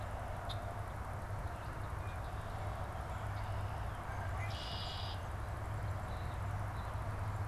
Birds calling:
Song Sparrow (Melospiza melodia)
Red-winged Blackbird (Agelaius phoeniceus)

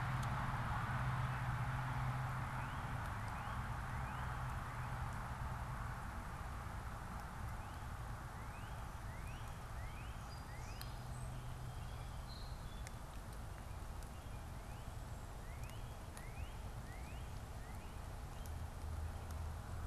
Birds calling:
Song Sparrow (Melospiza melodia)
Northern Cardinal (Cardinalis cardinalis)

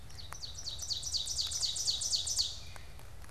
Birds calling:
Ovenbird (Seiurus aurocapilla)

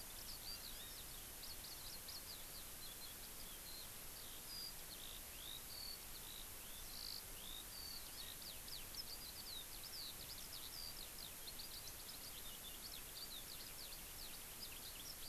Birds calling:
Eurasian Skylark (Alauda arvensis)
Hawaii Amakihi (Chlorodrepanis virens)

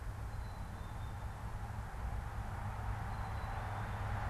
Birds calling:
Black-capped Chickadee (Poecile atricapillus)

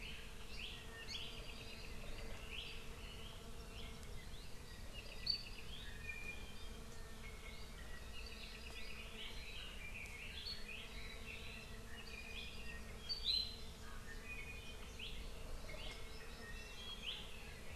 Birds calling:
Hawaii Amakihi (Chlorodrepanis virens)
Red-billed Leiothrix (Leiothrix lutea)
Apapane (Himatione sanguinea)

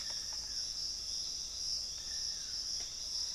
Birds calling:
Hauxwell's Thrush (Turdus hauxwelli)
Screaming Piha (Lipaugus vociferans)
Dusky-throated Antshrike (Thamnomanes ardesiacus)

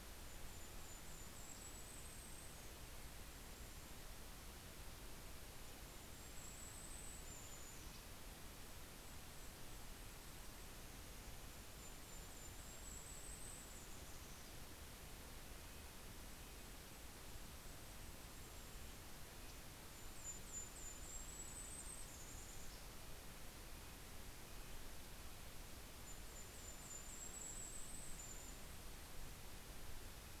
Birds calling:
Golden-crowned Kinglet (Regulus satrapa)
Red-breasted Nuthatch (Sitta canadensis)

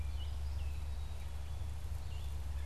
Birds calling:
Red-eyed Vireo (Vireo olivaceus)
Gray Catbird (Dumetella carolinensis)

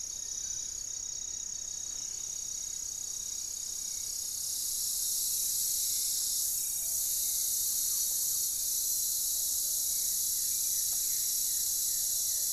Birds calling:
Plumbeous Pigeon (Patagioenas plumbea)
Goeldi's Antbird (Akletos goeldii)
unidentified bird
Hauxwell's Thrush (Turdus hauxwelli)
Black-faced Antthrush (Formicarius analis)

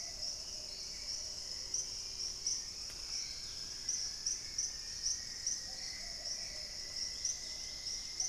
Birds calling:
Great Tinamou (Tinamus major)
Hauxwell's Thrush (Turdus hauxwelli)
Cinnamon-rumped Foliage-gleaner (Philydor pyrrhodes)
Dusky-capped Greenlet (Pachysylvia hypoxantha)
Plumbeous Pigeon (Patagioenas plumbea)
unidentified bird

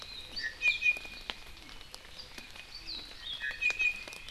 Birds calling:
Iiwi (Drepanis coccinea)

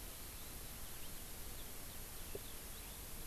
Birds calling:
Eurasian Skylark (Alauda arvensis)

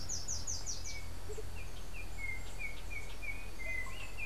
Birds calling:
Russet-backed Oropendola (Psarocolius angustifrons)
Andean Motmot (Momotus aequatorialis)
Slate-throated Redstart (Myioborus miniatus)
Yellow-backed Oriole (Icterus chrysater)

